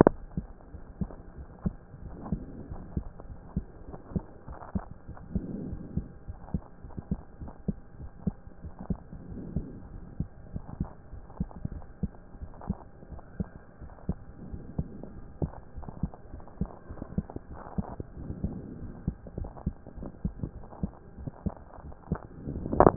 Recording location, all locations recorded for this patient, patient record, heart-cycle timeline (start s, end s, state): aortic valve (AV)
aortic valve (AV)+pulmonary valve (PV)+tricuspid valve (TV)+mitral valve (MV)
#Age: Child
#Sex: Female
#Height: 142.0 cm
#Weight: 39.0 kg
#Pregnancy status: False
#Murmur: Absent
#Murmur locations: nan
#Most audible location: nan
#Systolic murmur timing: nan
#Systolic murmur shape: nan
#Systolic murmur grading: nan
#Systolic murmur pitch: nan
#Systolic murmur quality: nan
#Diastolic murmur timing: nan
#Diastolic murmur shape: nan
#Diastolic murmur grading: nan
#Diastolic murmur pitch: nan
#Diastolic murmur quality: nan
#Outcome: Normal
#Campaign: 2014 screening campaign
0.00	0.72	unannotated
0.72	0.82	S1
0.82	1.00	systole
1.00	1.12	S2
1.12	1.38	diastole
1.38	1.48	S1
1.48	1.62	systole
1.62	1.74	S2
1.74	2.02	diastole
2.02	2.18	S1
2.18	2.30	systole
2.30	2.46	S2
2.46	2.70	diastole
2.70	2.82	S1
2.82	2.90	systole
2.90	3.04	S2
3.04	3.28	diastole
3.28	3.38	S1
3.38	3.52	systole
3.52	3.66	S2
3.66	3.88	diastole
3.88	3.98	S1
3.98	4.12	systole
4.12	4.26	S2
4.26	4.50	diastole
4.50	4.58	S1
4.58	4.72	systole
4.72	4.84	S2
4.84	5.08	diastole
5.08	5.16	S1
5.16	5.30	systole
5.30	5.44	S2
5.44	5.64	diastole
5.64	5.80	S1
5.80	5.94	systole
5.94	6.08	S2
6.08	6.28	diastole
6.28	6.38	S1
6.38	6.50	systole
6.50	6.62	S2
6.62	6.84	diastole
6.84	6.94	S1
6.94	7.10	systole
7.10	7.22	S2
7.22	7.42	diastole
7.42	7.52	S1
7.52	7.64	systole
7.64	7.76	S2
7.76	8.00	diastole
8.00	8.10	S1
8.10	8.22	systole
8.22	8.36	S2
8.36	8.64	diastole
8.64	8.74	S1
8.74	8.88	systole
8.88	9.02	S2
9.02	9.30	diastole
9.30	9.46	S1
9.46	9.54	systole
9.54	9.68	S2
9.68	9.92	diastole
9.92	10.02	S1
10.02	10.18	systole
10.18	10.30	S2
10.30	10.54	diastole
10.54	10.64	S1
10.64	10.78	systole
10.78	10.88	S2
10.88	11.12	diastole
11.12	11.22	S1
11.22	11.36	systole
11.36	11.48	S2
11.48	11.72	diastole
11.72	11.84	S1
11.84	12.02	systole
12.02	12.14	S2
12.14	12.40	diastole
12.40	12.52	S1
12.52	12.66	systole
12.66	12.80	S2
12.80	13.10	diastole
13.10	13.22	S1
13.22	13.36	systole
13.36	13.50	S2
13.50	13.80	diastole
13.80	13.92	S1
13.92	14.10	systole
14.10	14.22	S2
14.22	14.48	diastole
14.48	14.62	S1
14.62	14.74	systole
14.74	14.88	S2
14.88	15.16	diastole
15.16	15.26	S1
15.26	15.40	systole
15.40	15.54	S2
15.54	15.76	diastole
15.76	15.88	S1
15.88	15.98	systole
15.98	16.10	S2
16.10	16.34	diastole
16.34	16.42	S1
16.42	16.58	systole
16.58	16.70	S2
16.70	16.90	diastole
16.90	17.00	S1
17.00	17.14	systole
17.14	17.28	S2
17.28	17.50	diastole
17.50	22.96	unannotated